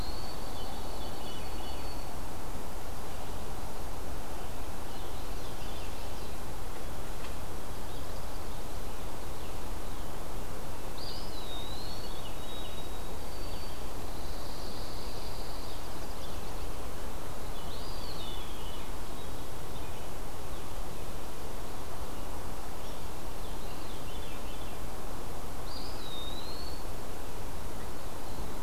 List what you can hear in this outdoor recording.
White-throated Sparrow, Veery, Chestnut-sided Warbler, Eastern Wood-Pewee, Pine Warbler